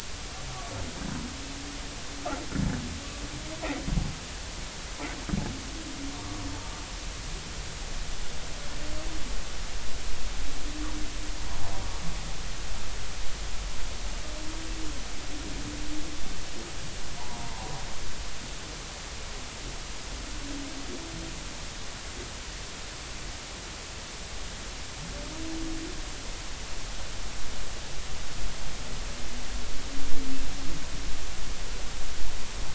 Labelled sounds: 6.1	6.4	humpback whale, 1.0 to 1.2 kHz
17.2	17.7	humpback whale, 0.80 to 1.1 kHz

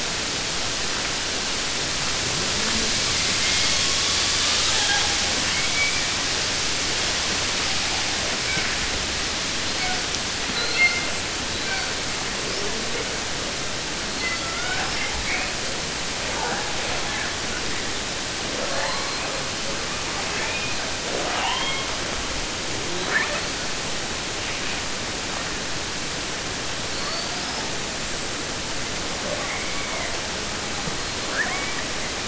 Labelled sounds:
3.1	5.3	killer whale, southern resident, J pod, call S01, 0.31 to 6.2 kHz
5.4	6.4	killer whale, southern resident, 0.50 to 4.0 kHz
8.4	8.8	killer whale, southern resident, J pod, call S42, 0.06 to 2.9 kHz
9.6	10.1	killer whale, southern resident, J pod, call S42, 0.18 to 4.9 kHz
10.5	11.2	killer whale, southern resident, J pod, call S42, 0.20 to 5.0 kHz
11.5	12.0	killer whale, southern resident, J pod, call S42, 0.15 to 5.0 kHz
12.4	13.1	killer whale, 0.18 to 5.9 kHz
14.0	15.5	killer whale, 0.50 to 6.1 kHz
16.1	18.0	killer whale, 0.19 to 2.8 kHz
18.4	19.6	killer whale, southern resident, 0.20 to 5.1 kHz
20.0	22.0	killer whale, southern resident, J pod, call S44, 0.16 to 4.5 kHz
22.8	23.8	killer whale, southern resident, 0.14 to 5.2 kHz
26.8	27.9	killer whale, 0.28 to 5.6 kHz
29.2	30.2	killer whale, southern resident, J pod, call S44, 0.21 to 2.5 kHz
30.7	32.0	killer whale, southern resident, 0.18 to 4.7 kHz

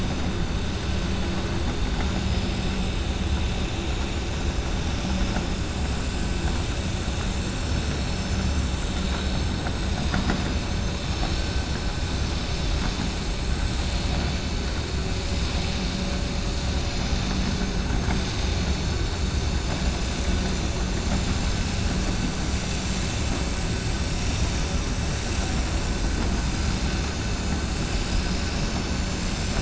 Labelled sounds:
12.7	13.1	vessel noise, 5.6 to 5.7 kHz

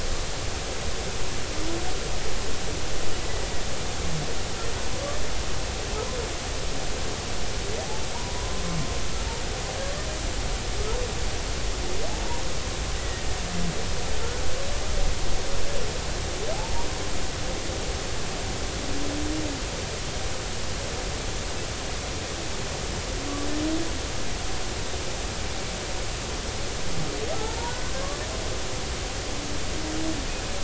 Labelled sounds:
8.1	8.6	humpback whale, 0.86 to 1.1 kHz
13.0	13.3	humpback whale, 1.8 to 2.0 kHz
27.3	27.9	humpback whale, 0.80 to 1.5 kHz

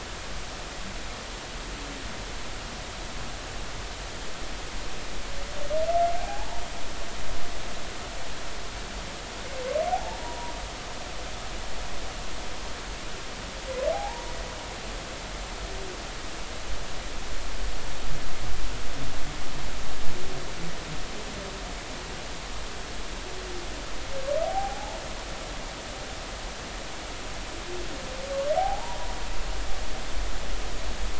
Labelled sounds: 6.2	6.6	humpback whale, 0.80 to 0.99 kHz
9.9	10.5	humpback whale, 0.80 to 1.0 kHz
13.9	14.3	humpback whale, 0.80 to 1.0 kHz
24.4	25.0	humpback whale, 0.80 to 0.96 kHz
28.6	29.1	humpback whale, 0.80 to 1.0 kHz

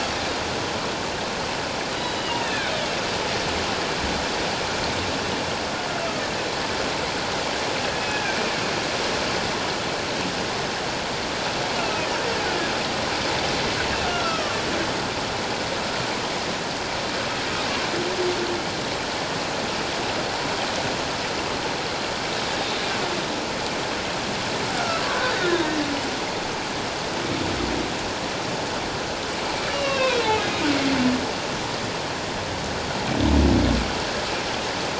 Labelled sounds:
2.0	2.7	humpback whale, 1.4 to 4.0 kHz
8.0	8.4	humpback whale, 1.5 to 2.6 kHz
11.7	12.1	humpback whale, 2.4 to 2.9 kHz
14.0	14.6	humpback whale, 1.1 to 5.6 kHz
24.7	25.6	humpback whale, 1.3 to 2.0 kHz
29.7	30.2	humpback whale, 0.94 to 3.9 kHz

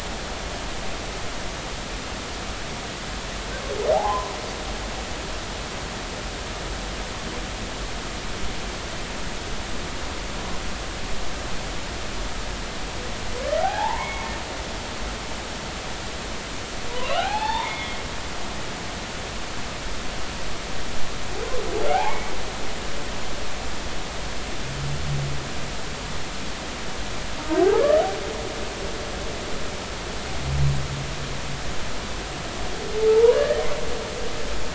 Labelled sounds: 3.9	4.3	humpback whale, 0.80 to 1.1 kHz
13.6	14.3	humpback whale, 0.80 to 2.3 kHz
16.9	18.0	humpback whale, 0.80 to 4.4 kHz
21.9	22.3	humpback whale, 0.80 to 2.3 kHz
27.8	28.0	humpback whale, 1.6 to 2.0 kHz
33.1	33.7	humpback whale, 0.83 to 2.0 kHz

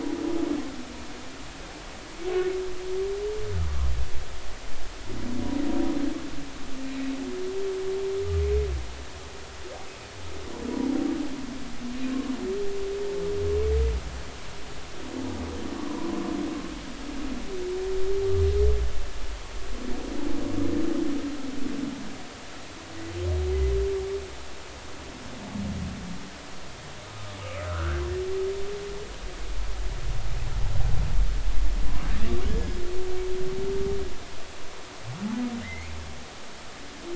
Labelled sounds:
6.8	7.1	humpback whale, 2.4 to 2.6 kHz
15.8	16.2	humpback whale, 0.93 to 1.2 kHz
28.7	29.0	humpback whale, 1.2 to 1.7 kHz
35.6	35.9	humpback whale, 1.7 to 2.4 kHz

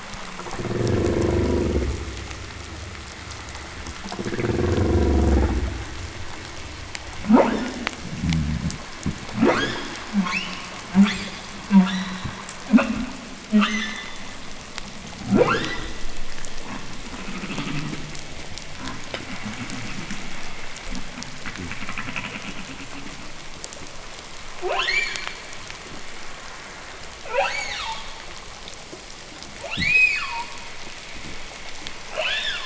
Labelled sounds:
0.4	2.0	humpback whale, growl, 0.02 to 1.2 kHz
3.9	6.0	humpback whale, growl, 0 to 2.8 kHz
7.2	7.7	humpback whale, 0.13 to 3.1 kHz
8.0	8.9	fish, groan, 0.03 to 0.34 kHz
9.0	9.2	fish, knock, 0.03 to 0.53 kHz
9.2	10.1	humpback whale, 0.09 to 8.0 kHz
10.0	12.4	humpback whale, shriek, 0.11 to 7.7 kHz
12.2	12.4	fish, knock, 0.01 to 0.34 kHz
12.7	13.1	humpback whale, 0.12 to 3.7 kHz
13.5	14.5	humpback whale, shriek, 0.13 to 6.7 kHz
15.1	16.2	humpback whale, 0.06 to 6.3 kHz
16.6	18.3	humpback whale, creak, 0.05 to 3.6 kHz
18.6	20.7	humpback whale, 0 to 3.5 kHz
20.9	23.4	humpback whale, creak, 0 to 3.5 kHz
24.4	25.5	humpback whale, 0.32 to 8.0 kHz
27.1	28.1	humpback whale, 0.40 to 8.0 kHz
29.5	30.6	humpback whale, 0.44 to 8.0 kHz
29.6	30.0	fish, knock, 0.02 to 0.39 kHz
32.0	32.6	humpback whale, 0.36 to 8.0 kHz

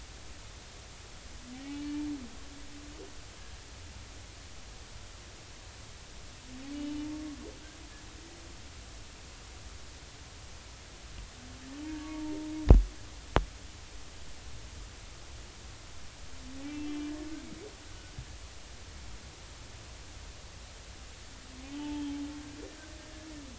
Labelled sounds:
1.6	2.1	humpback whale, 2.2 to 2.4 kHz
6.7	7.1	humpback whale, 2.8 to 3.0 kHz
11.8	12.4	humpback whale, 0.86 to 0.99 kHz
16.8	17.1	humpback whale, 2.9 to 3.3 kHz
21.7	22.2	humpback whale, 0.83 to 3.3 kHz

